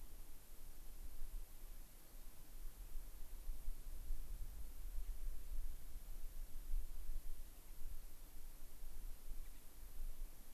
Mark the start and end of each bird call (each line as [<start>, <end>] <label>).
[9.39, 9.59] Gray-crowned Rosy-Finch (Leucosticte tephrocotis)